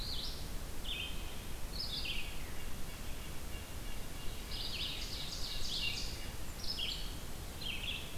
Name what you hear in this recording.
Red-eyed Vireo, Red-breasted Nuthatch, Ovenbird, Blackburnian Warbler